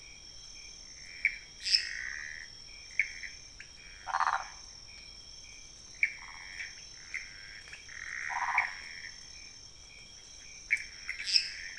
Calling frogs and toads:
Pithecopus azureus, Dendropsophus minutus, Leptodactylus podicipinus, Phyllomedusa sauvagii
Cerrado, ~1am

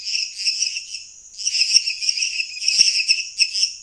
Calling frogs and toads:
Dendropsophus minutus
Cerrado, 10pm

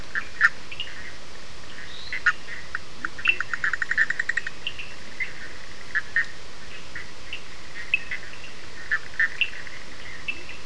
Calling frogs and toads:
Boana bischoffi, Sphaenorhynchus surdus, Dendropsophus minutus, Leptodactylus latrans
Brazil, 11:00pm

